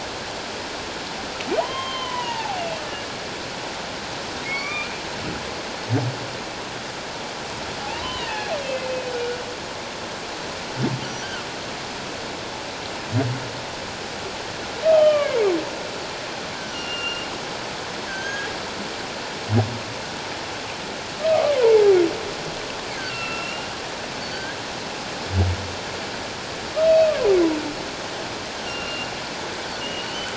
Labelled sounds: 1.6	2.6	humpback whale, 0.78 to 3.3 kHz
4.4	4.9	humpback whale, 1.0 to 2.6 kHz
7.8	8.9	humpback whale, 0.78 to 2.8 kHz
14.9	15.4	humpback whale, 1.1 to 3.2 kHz
16.5	17.3	humpback whale, 1.3 to 5.9 kHz
18.1	18.5	humpback whale, 1.5 to 6.6 kHz
22.9	23.7	humpback whale, 1.3 to 2.9 kHz
24.2	24.5	humpback whale, 4.4 to 4.7 kHz
26.8	27.1	humpback whale, 2.5 to 2.7 kHz
28.6	30.3	humpback whale, 1.3 to 3.1 kHz

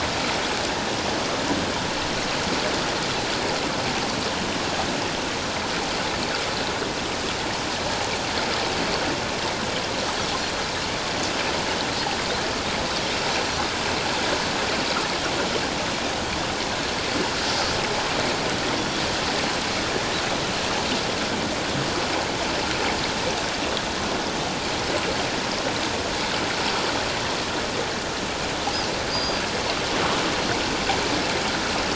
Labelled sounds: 29.1	29.5	Pacific white-sided dolphin, 4.4 to 4.9 kHz

